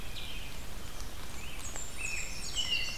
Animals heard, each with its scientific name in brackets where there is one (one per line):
Black-throated Green Warbler (Setophaga virens)
American Robin (Turdus migratorius)
Blackburnian Warbler (Setophaga fusca)